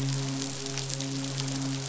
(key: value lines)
label: biophony, midshipman
recorder: SoundTrap 500